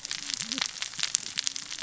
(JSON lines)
{"label": "biophony, cascading saw", "recorder": "SoundTrap 600 or HydroMoth"}